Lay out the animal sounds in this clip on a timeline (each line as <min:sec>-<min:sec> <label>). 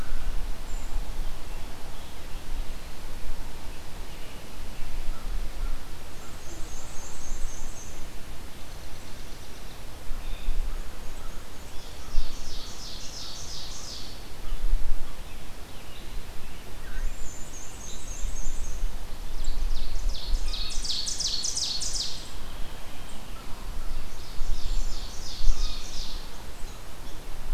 0:00.4-0:01.3 Brown Creeper (Certhia americana)
0:03.8-0:05.1 American Robin (Turdus migratorius)
0:05.0-0:06.5 American Crow (Corvus brachyrhynchos)
0:06.0-0:08.1 Black-and-white Warbler (Mniotilta varia)
0:08.4-0:09.8 unidentified call
0:10.0-0:10.6 Blue Jay (Cyanocitta cristata)
0:10.5-0:12.2 Black-and-white Warbler (Mniotilta varia)
0:11.6-0:14.2 Ovenbird (Seiurus aurocapilla)
0:14.3-0:14.7 Blue Jay (Cyanocitta cristata)
0:15.1-0:16.2 American Robin (Turdus migratorius)
0:16.9-0:18.8 Black-and-white Warbler (Mniotilta varia)
0:19.2-0:22.3 Ovenbird (Seiurus aurocapilla)
0:20.4-0:20.9 Blue Jay (Cyanocitta cristata)
0:23.7-0:26.3 Ovenbird (Seiurus aurocapilla)
0:24.5-0:25.1 Brown Creeper (Certhia americana)
0:25.3-0:26.0 Blue Jay (Cyanocitta cristata)